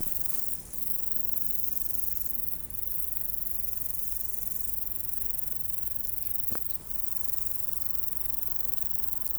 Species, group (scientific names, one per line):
Chorthippus biguttulus
Orthoptera